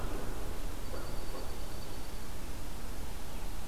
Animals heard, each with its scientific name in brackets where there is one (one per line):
Dark-eyed Junco (Junco hyemalis)